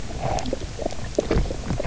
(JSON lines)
{"label": "biophony, knock croak", "recorder": "SoundTrap 300"}